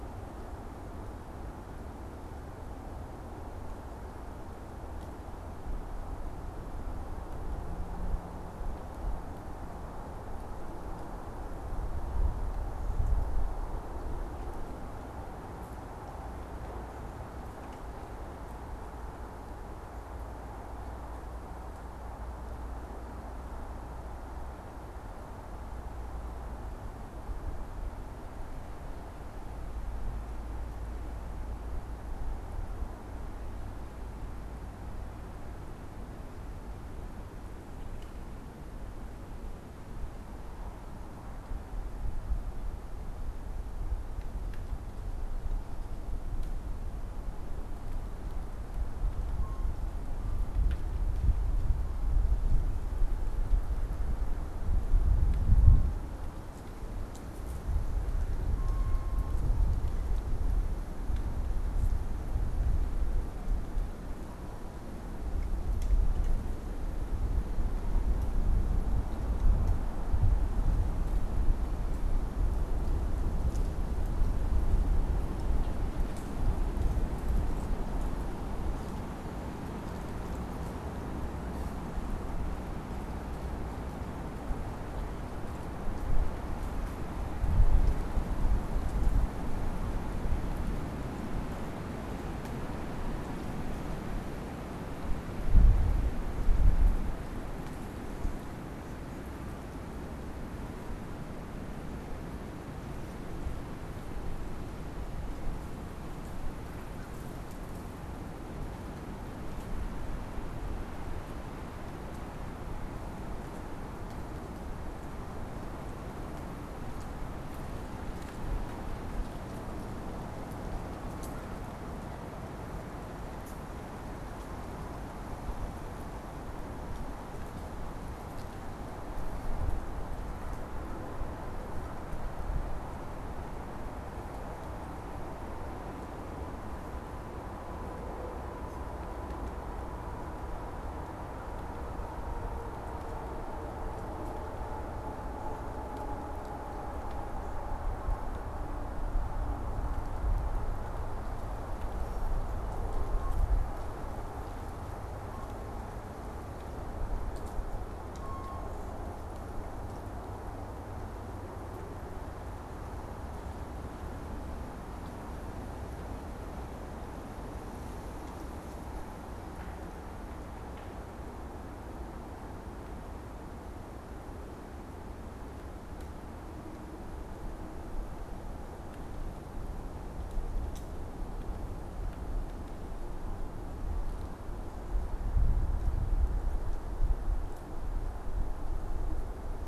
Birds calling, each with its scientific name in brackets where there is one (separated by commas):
American Crow (Corvus brachyrhynchos)